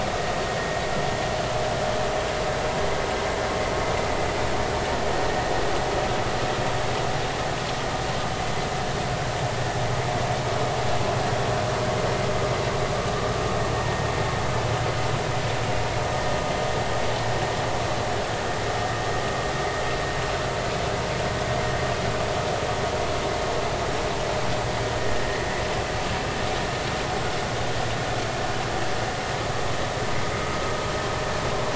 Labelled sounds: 13.8	14.0	vessel noise, 1.8 to 1.9 kHz

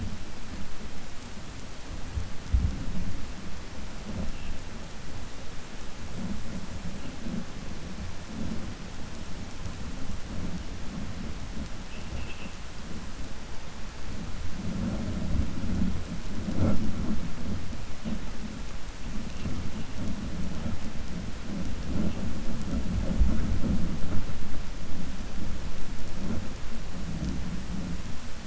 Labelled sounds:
11.8	12.5	vessel noise, 2.5 to 3.3 kHz

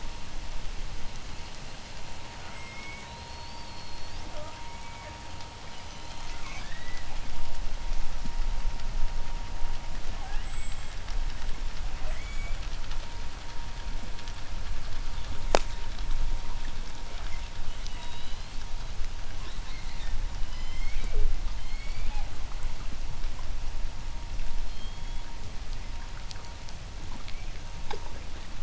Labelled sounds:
2.0	5.3	killer whale, southern resident, J pod, 0.39 to 8.0 kHz
5.5	7.3	killer whale, southern resident, J pod, 0.98 to 8.0 kHz
9.8	11.2	killer whale, southern resident, J pod, 0.26 to 8.0 kHz
11.7	12.7	killer whale, southern resident, J pod, 0.26 to 8.0 kHz
17.6	18.6	killer whale, southern resident, J pod, 0.56 to 7.0 kHz
19.2	20.3	killer whale, southern resident, J pod, 0.64 to 5.7 kHz
20.1	21.4	killer whale, southern resident, J pod, call S01, 0.21 to 8.0 kHz
21.5	22.5	killer whale, southern resident, J pod, 0.34 to 8.0 kHz
24.3	25.5	killer whale, southern resident, J pod, 1.7 to 7.8 kHz

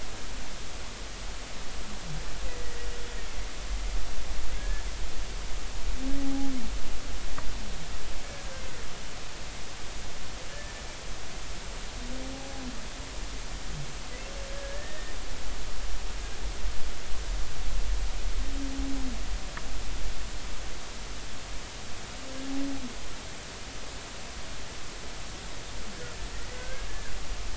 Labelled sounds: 4.6	4.8	humpback whale, 1.6 to 1.8 kHz
6.2	6.5	humpback whale, 0.80 to 0.86 kHz
10.5	10.8	humpback whale, 1.7 to 1.8 kHz
14.5	15.1	humpback whale, 1.6 to 1.9 kHz
26.5	27.1	humpback whale, 1.5 to 1.8 kHz

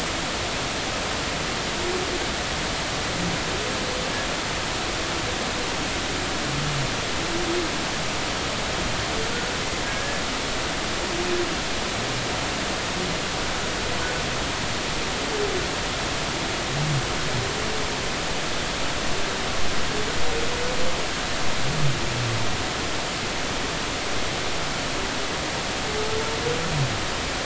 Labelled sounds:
9.9	10.2	humpback whale, 1.6 to 1.8 kHz

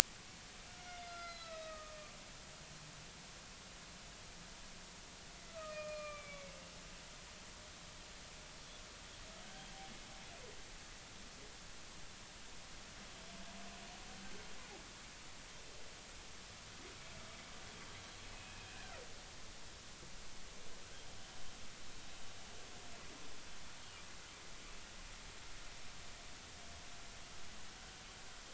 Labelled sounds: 0.7	2.1	humpback whale, 1.2 to 5.8 kHz
5.5	6.5	humpback whale, 1.1 to 2.5 kHz
17.9	18.7	humpback whale, 2.4 to 4.3 kHz

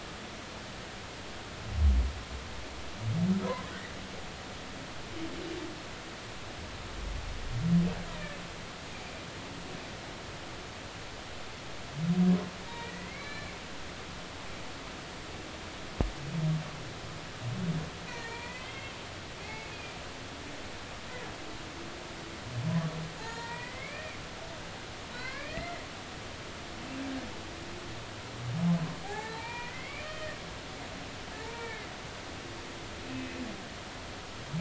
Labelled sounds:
3.4	3.7	humpback whale, 0.93 to 1.1 kHz
12.7	13.6	humpback whale, 0.90 to 4.2 kHz
18.1	18.9	humpback whale, 0.86 to 4.4 kHz
19.4	19.9	humpback whale, 2.0 to 2.7 kHz
23.2	24.2	humpback whale, 0.83 to 4.3 kHz
25.1	25.9	humpback whale, 0.96 to 4.3 kHz
29.0	30.4	humpback whale, 0.80 to 3.2 kHz
31.4	31.9	humpback whale, 0.83 to 2.4 kHz
32.6	32.9	humpback whale, 1.7 to 1.9 kHz

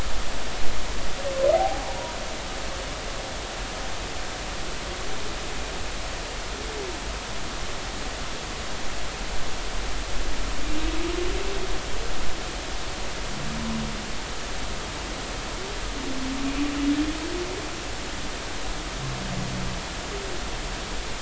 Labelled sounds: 1.5	1.9	humpback whale, 0.80 to 0.86 kHz

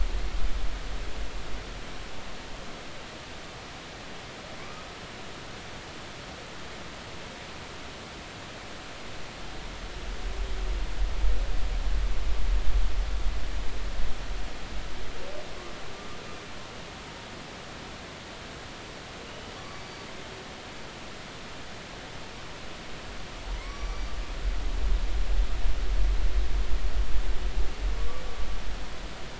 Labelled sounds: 4.6	4.9	humpback whale, 1.1 to 1.3 kHz

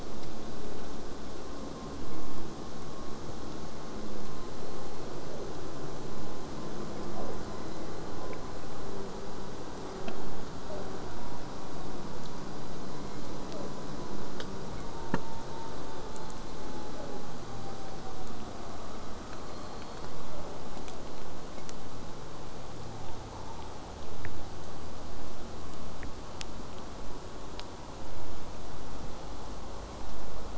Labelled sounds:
0.0	5.0	vessel noise, 0 to 8.0 kHz
10.1	10.9	killer whale, southern resident, J pod, 0.17 to 1.2 kHz
12.9	13.7	killer whale, southern resident, J pod, 0.21 to 3.5 kHz
16.4	17.2	killer whale, southern resident, J pod, 0.21 to 1.8 kHz

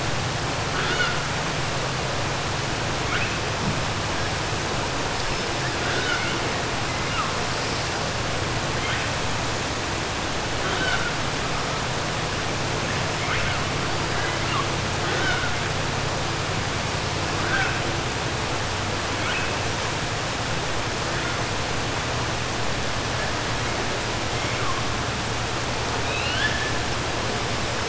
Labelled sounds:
5.8	6.4	killer whale, 0.51 to 4.6 kHz
10.6	11.1	killer whale, 0.70 to 4.6 kHz
14.1	14.7	killer whale, 1.0 to 3.3 kHz
26.0	26.7	killer whale, 1.5 to 5.1 kHz

